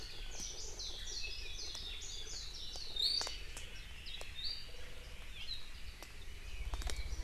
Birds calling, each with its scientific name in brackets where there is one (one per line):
Iiwi (Drepanis coccinea)
Warbling White-eye (Zosterops japonicus)